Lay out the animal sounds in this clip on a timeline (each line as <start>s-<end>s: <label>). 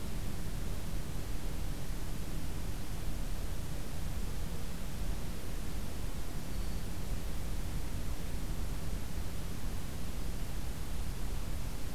6.3s-6.9s: Black-throated Green Warbler (Setophaga virens)